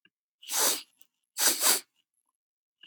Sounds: Sniff